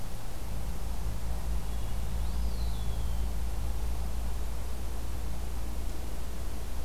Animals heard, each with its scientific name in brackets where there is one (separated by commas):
Eastern Wood-Pewee (Contopus virens)